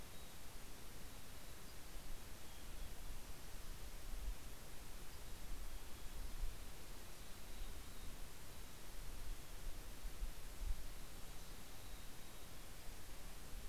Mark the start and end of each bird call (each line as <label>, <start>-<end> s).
Mountain Chickadee (Poecile gambeli), 0.0-0.6 s
Mountain Chickadee (Poecile gambeli), 1.3-3.3 s
Pacific-slope Flycatcher (Empidonax difficilis), 1.5-2.0 s
Mountain Chickadee (Poecile gambeli), 4.6-6.5 s
Pacific-slope Flycatcher (Empidonax difficilis), 4.8-5.5 s
Mountain Chickadee (Poecile gambeli), 7.3-9.8 s
Mountain Chickadee (Poecile gambeli), 11.1-13.4 s